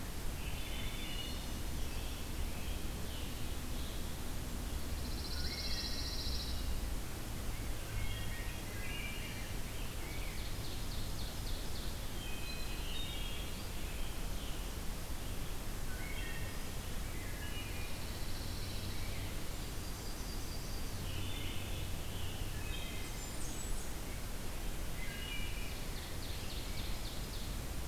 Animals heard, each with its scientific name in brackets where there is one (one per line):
Scarlet Tanager (Piranga olivacea)
Yellow-rumped Warbler (Setophaga coronata)
Blackburnian Warbler (Setophaga fusca)
Wood Thrush (Hylocichla mustelina)
Ovenbird (Seiurus aurocapilla)
Pine Warbler (Setophaga pinus)
Rose-breasted Grosbeak (Pheucticus ludovicianus)